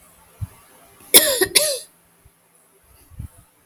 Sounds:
Cough